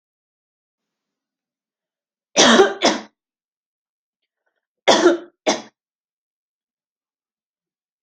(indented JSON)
{
  "expert_labels": [
    {
      "quality": "good",
      "cough_type": "wet",
      "dyspnea": false,
      "wheezing": false,
      "stridor": false,
      "choking": false,
      "congestion": false,
      "nothing": true,
      "diagnosis": "lower respiratory tract infection",
      "severity": "mild"
    }
  ],
  "age": 28,
  "gender": "female",
  "respiratory_condition": true,
  "fever_muscle_pain": true,
  "status": "symptomatic"
}